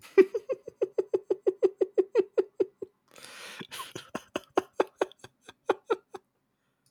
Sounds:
Laughter